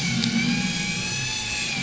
{"label": "anthrophony, boat engine", "recorder": "SoundTrap 500"}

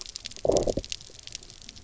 {"label": "biophony, low growl", "recorder": "SoundTrap 300"}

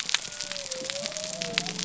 {"label": "biophony", "recorder": "SoundTrap 300"}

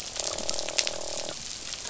{"label": "biophony, croak", "recorder": "SoundTrap 500"}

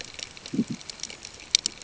{"label": "ambient", "recorder": "HydroMoth"}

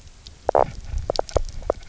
{"label": "biophony, knock croak", "recorder": "SoundTrap 300"}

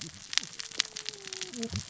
{"label": "biophony, cascading saw", "recorder": "SoundTrap 600 or HydroMoth"}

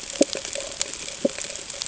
{"label": "ambient", "recorder": "HydroMoth"}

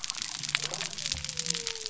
{"label": "biophony", "recorder": "SoundTrap 300"}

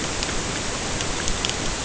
{"label": "ambient", "recorder": "HydroMoth"}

